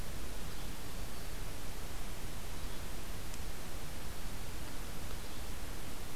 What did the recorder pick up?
Black-throated Green Warbler